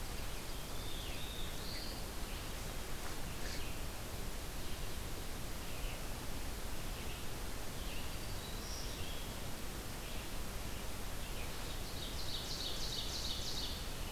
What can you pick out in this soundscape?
Red-eyed Vireo, Black-throated Blue Warbler, Black-throated Green Warbler, Ovenbird